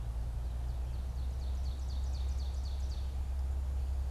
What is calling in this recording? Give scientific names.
Seiurus aurocapilla